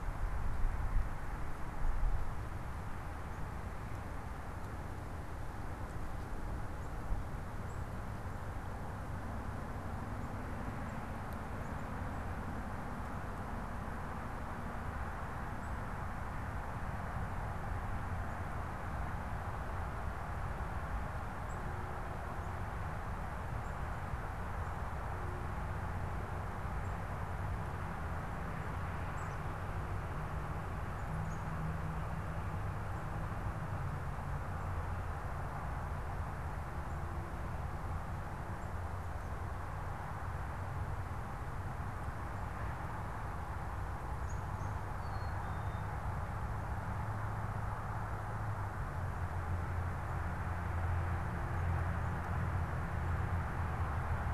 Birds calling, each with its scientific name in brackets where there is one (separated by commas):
unidentified bird, Black-capped Chickadee (Poecile atricapillus)